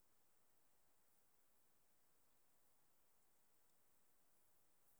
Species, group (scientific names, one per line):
Barbitistes serricauda
Orthoptera